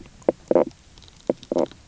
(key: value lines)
label: biophony, knock croak
recorder: SoundTrap 300